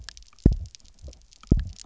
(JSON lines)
{"label": "biophony, double pulse", "recorder": "SoundTrap 300"}